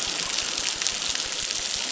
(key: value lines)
label: biophony, crackle
recorder: SoundTrap 600